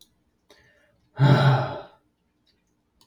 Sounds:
Sigh